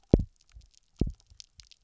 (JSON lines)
{"label": "biophony, double pulse", "recorder": "SoundTrap 300"}